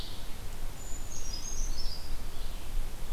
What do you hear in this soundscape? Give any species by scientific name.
Vireo olivaceus, Certhia americana